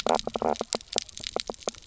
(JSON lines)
{"label": "biophony, knock croak", "recorder": "SoundTrap 300"}